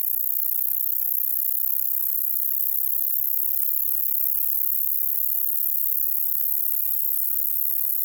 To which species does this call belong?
Polysarcus denticauda